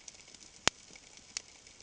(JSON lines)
{"label": "ambient", "recorder": "HydroMoth"}